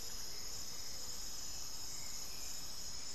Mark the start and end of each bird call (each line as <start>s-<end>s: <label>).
0.0s-3.1s: Hauxwell's Thrush (Turdus hauxwelli)
0.0s-3.1s: Speckled Chachalaca (Ortalis guttata)
0.3s-1.0s: Amazonian Motmot (Momotus momota)